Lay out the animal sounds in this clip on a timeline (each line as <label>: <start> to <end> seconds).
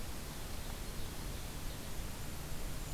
Golden-crowned Kinglet (Regulus satrapa): 2.0 to 2.9 seconds